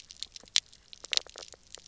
{"label": "biophony, knock croak", "recorder": "SoundTrap 300"}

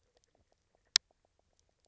{"label": "biophony, knock croak", "recorder": "SoundTrap 300"}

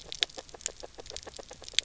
{"label": "biophony, grazing", "recorder": "SoundTrap 300"}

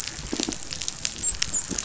{"label": "biophony, dolphin", "recorder": "SoundTrap 500"}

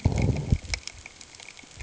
{"label": "ambient", "recorder": "HydroMoth"}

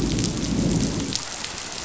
{"label": "biophony, growl", "recorder": "SoundTrap 500"}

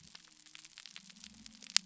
{"label": "biophony", "recorder": "SoundTrap 300"}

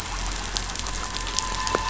{"label": "anthrophony, boat engine", "recorder": "SoundTrap 500"}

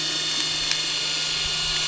{"label": "anthrophony, boat engine", "recorder": "SoundTrap 300"}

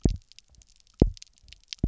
{"label": "biophony, double pulse", "recorder": "SoundTrap 300"}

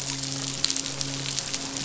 {"label": "biophony, midshipman", "recorder": "SoundTrap 500"}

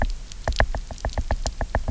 {"label": "biophony, knock", "recorder": "SoundTrap 300"}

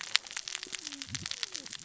{"label": "biophony, cascading saw", "recorder": "SoundTrap 600 or HydroMoth"}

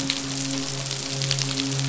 {"label": "biophony, midshipman", "recorder": "SoundTrap 500"}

